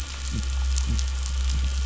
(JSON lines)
{"label": "anthrophony, boat engine", "recorder": "SoundTrap 500"}